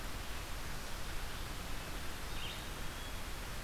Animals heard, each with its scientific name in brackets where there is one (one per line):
Black-capped Chickadee (Poecile atricapillus)
Red-eyed Vireo (Vireo olivaceus)